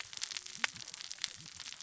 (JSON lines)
{"label": "biophony, cascading saw", "recorder": "SoundTrap 600 or HydroMoth"}